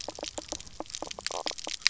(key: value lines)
label: biophony, knock croak
recorder: SoundTrap 300